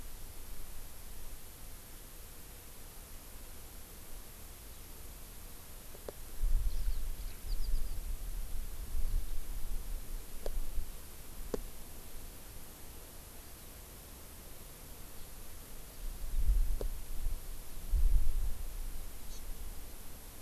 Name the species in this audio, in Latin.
Alauda arvensis, Chlorodrepanis virens